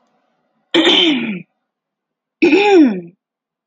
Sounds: Throat clearing